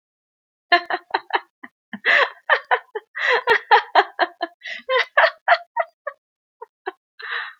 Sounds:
Laughter